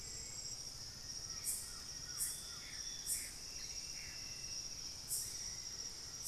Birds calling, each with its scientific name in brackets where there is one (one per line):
Hauxwell's Thrush (Turdus hauxwelli)
Plain-winged Antshrike (Thamnophilus schistaceus)
Collared Trogon (Trogon collaris)
Gray Antbird (Cercomacra cinerascens)